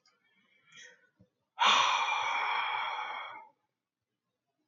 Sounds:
Sigh